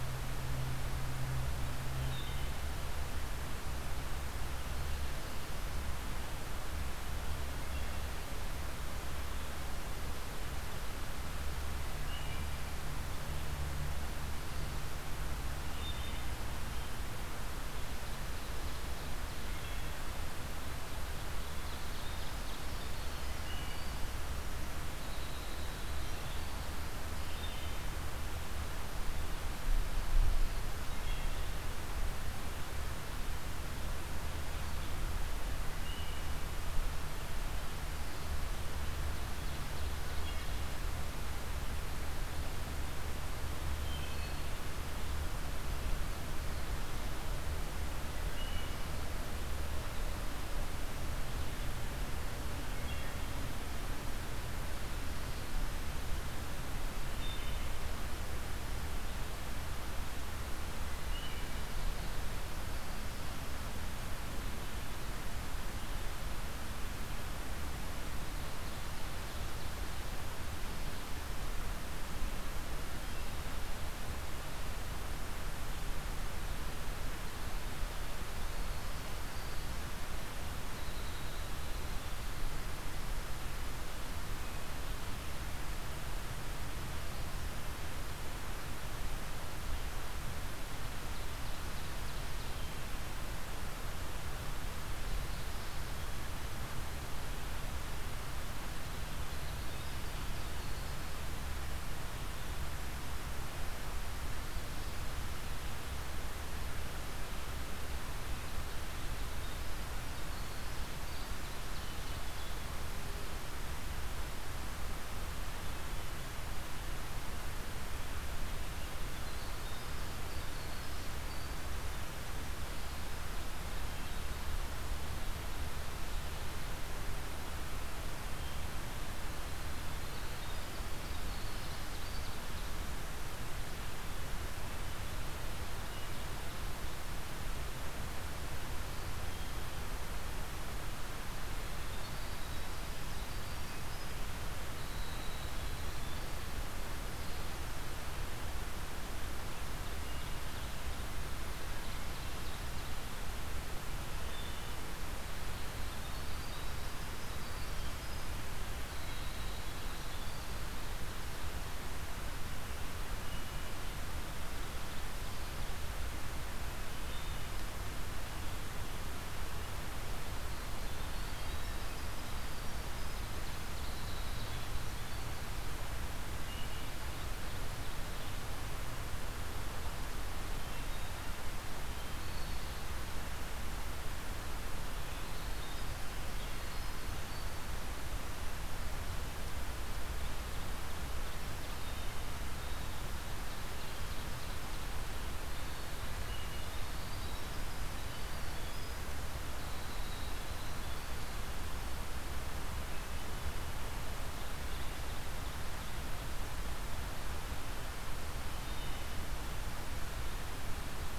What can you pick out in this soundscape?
Wood Thrush, Ovenbird, Winter Wren